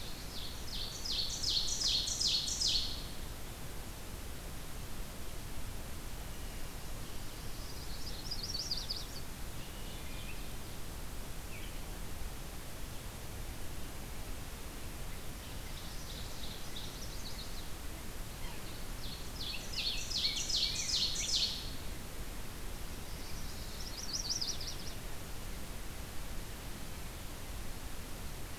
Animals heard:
Wood Thrush (Hylocichla mustelina), Chestnut-sided Warbler (Setophaga pensylvanica), Rose-breasted Grosbeak (Pheucticus ludovicianus), Ovenbird (Seiurus aurocapilla)

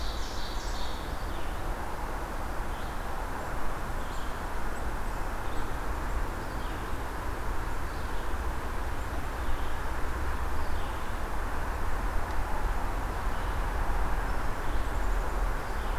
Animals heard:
Red-eyed Vireo (Vireo olivaceus), Black-capped Chickadee (Poecile atricapillus), Ovenbird (Seiurus aurocapilla)

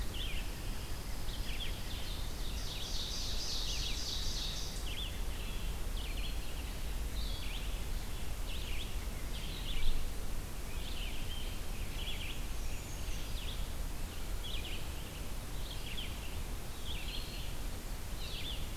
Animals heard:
Pine Warbler (Setophaga pinus), Brown Creeper (Certhia americana), Ovenbird (Seiurus aurocapilla), Red-eyed Vireo (Vireo olivaceus), unidentified call

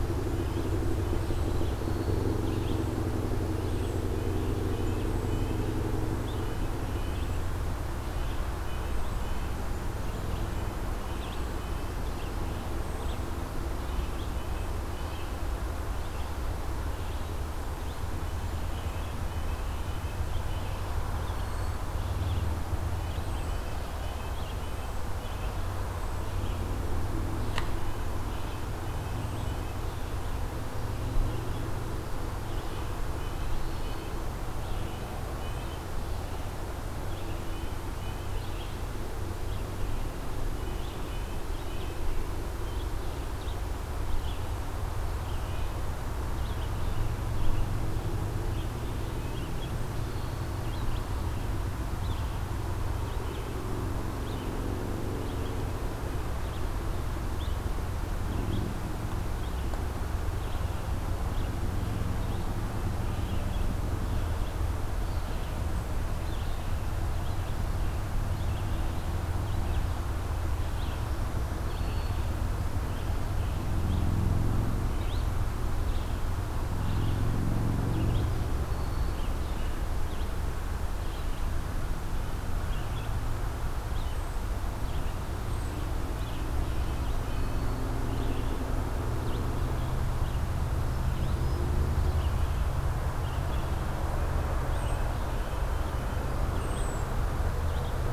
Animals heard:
Red-breasted Nuthatch (Sitta canadensis), Cedar Waxwing (Bombycilla cedrorum), Red-eyed Vireo (Vireo olivaceus), Black-throated Green Warbler (Setophaga virens)

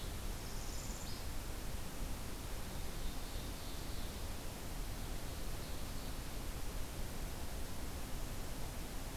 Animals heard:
Ovenbird (Seiurus aurocapilla), Northern Parula (Setophaga americana)

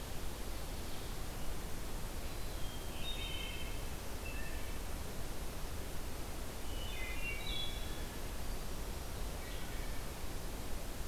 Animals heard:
Wood Thrush (Hylocichla mustelina)

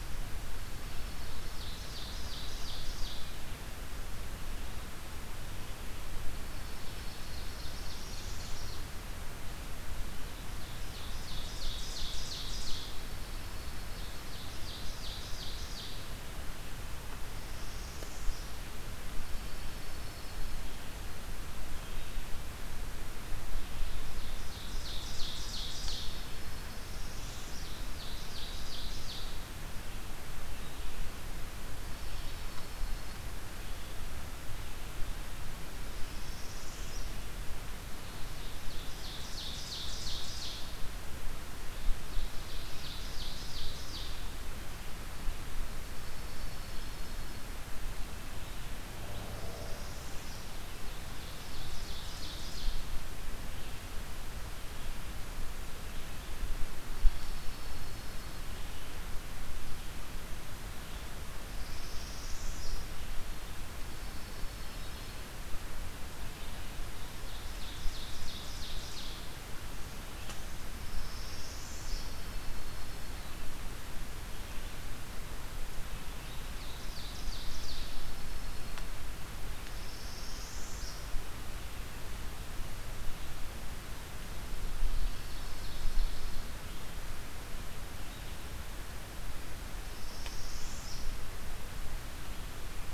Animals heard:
Ovenbird (Seiurus aurocapilla), Northern Parula (Setophaga americana), Dark-eyed Junco (Junco hyemalis)

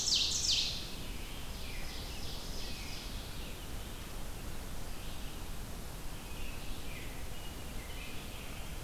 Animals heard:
Ovenbird (Seiurus aurocapilla), Red-eyed Vireo (Vireo olivaceus), American Robin (Turdus migratorius)

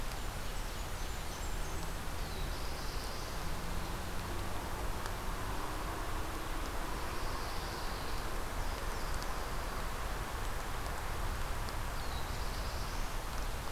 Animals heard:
Blackburnian Warbler (Setophaga fusca), Pine Warbler (Setophaga pinus), Black-throated Blue Warbler (Setophaga caerulescens)

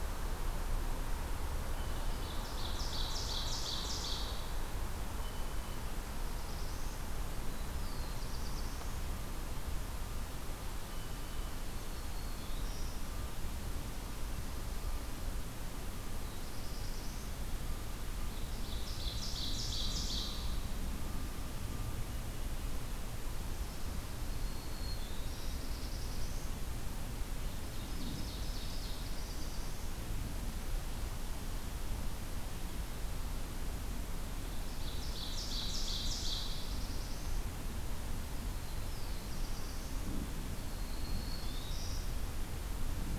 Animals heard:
Black-throated Blue Warbler (Setophaga caerulescens), Ovenbird (Seiurus aurocapilla), Black-throated Green Warbler (Setophaga virens)

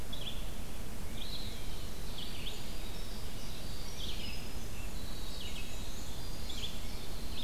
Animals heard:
Tufted Titmouse (Baeolophus bicolor), Black-and-white Warbler (Mniotilta varia), Red-eyed Vireo (Vireo olivaceus), Ovenbird (Seiurus aurocapilla), Winter Wren (Troglodytes hiemalis)

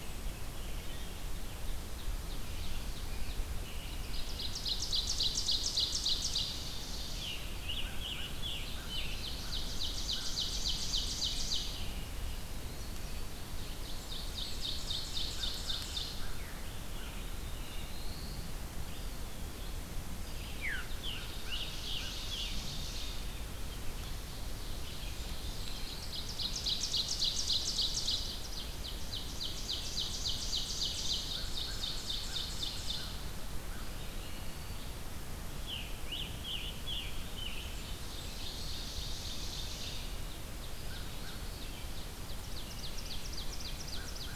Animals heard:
Black-throated Blue Warbler (Setophaga caerulescens), Veery (Catharus fuscescens), Red-eyed Vireo (Vireo olivaceus), Blackburnian Warbler (Setophaga fusca), American Crow (Corvus brachyrhynchos), Scarlet Tanager (Piranga olivacea), Ovenbird (Seiurus aurocapilla), Eastern Wood-Pewee (Contopus virens)

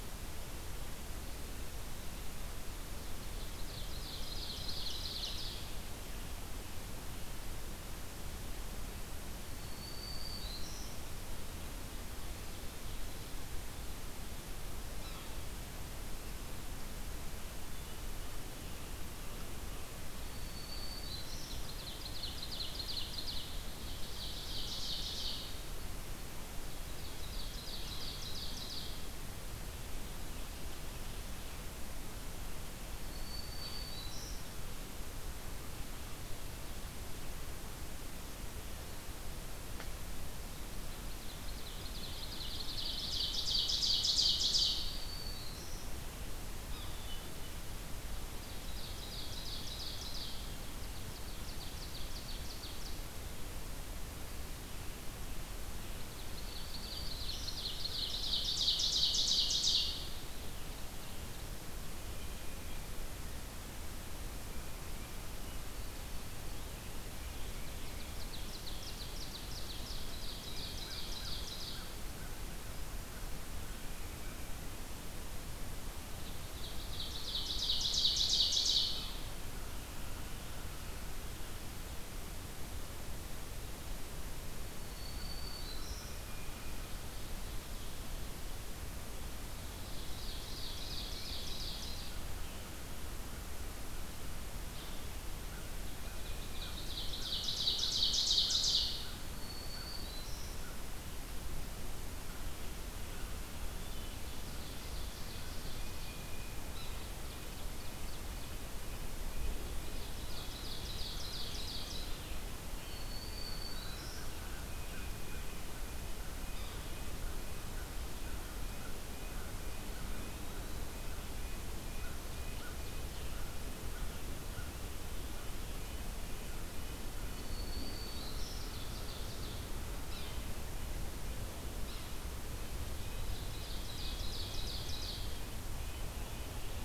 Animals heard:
American Crow (Corvus brachyrhynchos), Yellow-bellied Sapsucker (Sphyrapicus varius), Ovenbird (Seiurus aurocapilla), Tufted Titmouse (Baeolophus bicolor), Black-throated Green Warbler (Setophaga virens), Red-breasted Nuthatch (Sitta canadensis), Hermit Thrush (Catharus guttatus)

